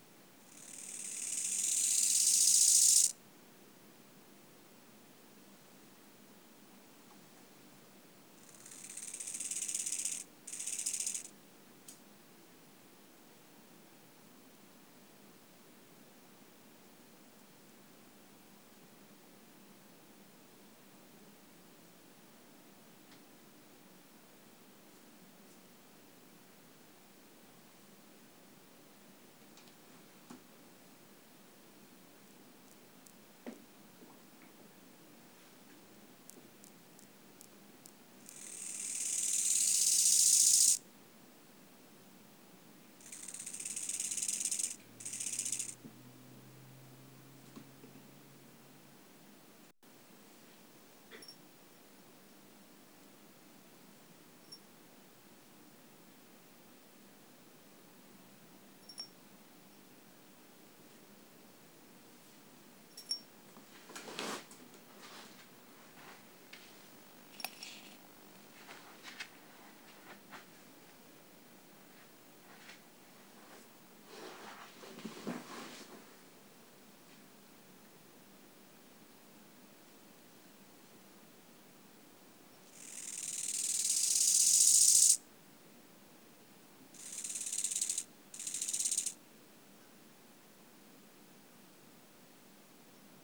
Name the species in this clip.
Chorthippus biguttulus